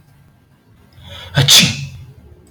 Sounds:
Sneeze